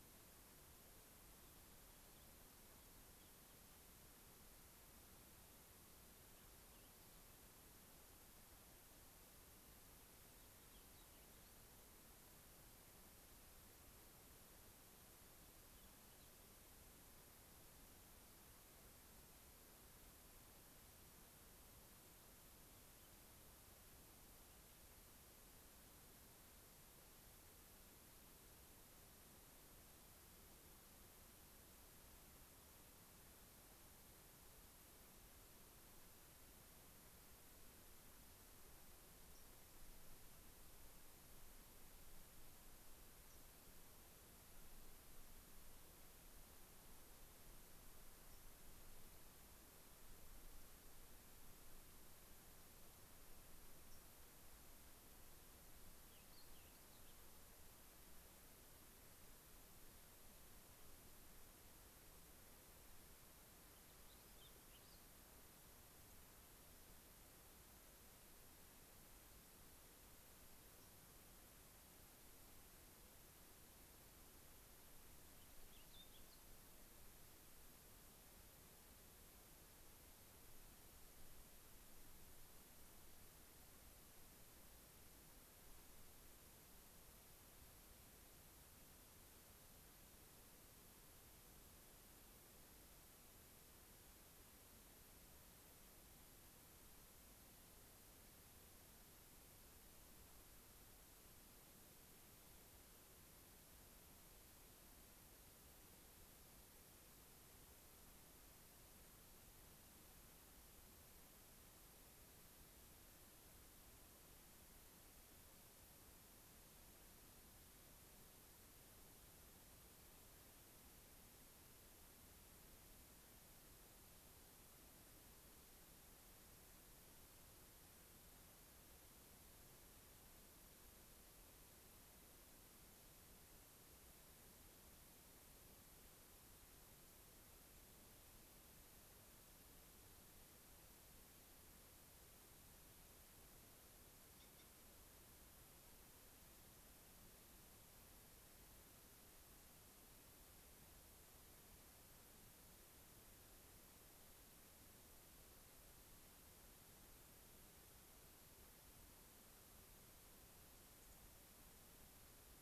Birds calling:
unidentified bird, Dark-eyed Junco (Junco hyemalis), Warbling Vireo (Vireo gilvus), Fox Sparrow (Passerella iliaca)

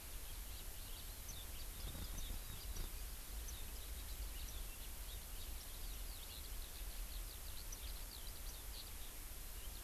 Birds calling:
Eurasian Skylark (Alauda arvensis), Warbling White-eye (Zosterops japonicus)

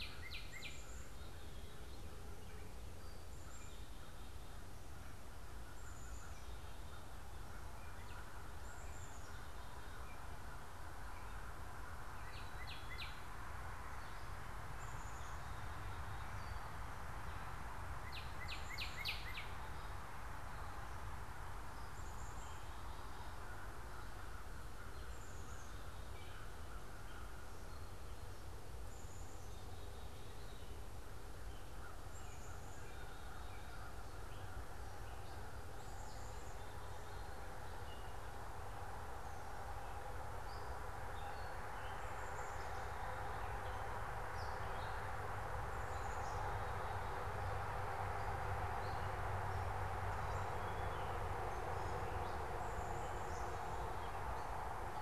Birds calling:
Black-capped Chickadee (Poecile atricapillus), Northern Cardinal (Cardinalis cardinalis), American Crow (Corvus brachyrhynchos), Gray Catbird (Dumetella carolinensis)

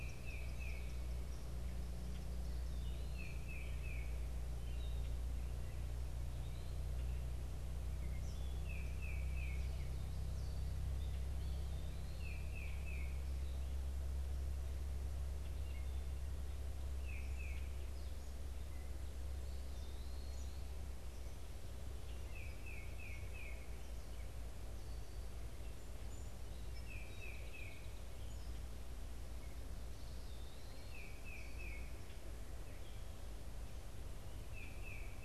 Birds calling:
Eastern Kingbird (Tyrannus tyrannus), Tufted Titmouse (Baeolophus bicolor), Song Sparrow (Melospiza melodia), Eastern Wood-Pewee (Contopus virens)

